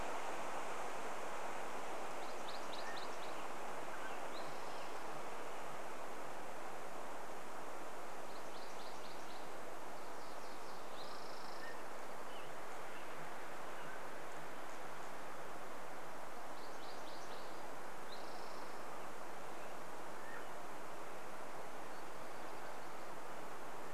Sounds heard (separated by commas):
MacGillivray's Warbler song, American Robin song, unidentified bird chip note, Spotted Towhee song, unidentified sound, Mountain Quail call